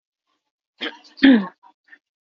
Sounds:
Throat clearing